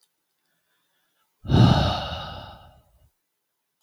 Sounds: Sigh